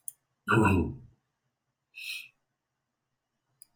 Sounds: Throat clearing